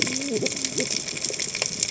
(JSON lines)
{"label": "biophony, cascading saw", "recorder": "HydroMoth"}